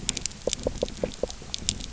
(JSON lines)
{"label": "biophony, knock", "recorder": "SoundTrap 300"}